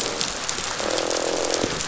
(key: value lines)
label: biophony, croak
recorder: SoundTrap 500